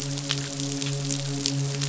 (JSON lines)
{"label": "biophony, midshipman", "recorder": "SoundTrap 500"}